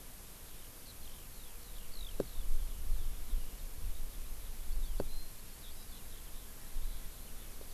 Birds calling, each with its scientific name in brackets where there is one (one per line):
Eurasian Skylark (Alauda arvensis)